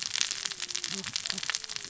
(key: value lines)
label: biophony, cascading saw
recorder: SoundTrap 600 or HydroMoth